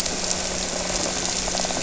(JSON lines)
{"label": "anthrophony, boat engine", "recorder": "SoundTrap 300"}
{"label": "biophony", "recorder": "SoundTrap 300"}